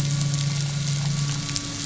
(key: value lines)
label: anthrophony, boat engine
recorder: SoundTrap 500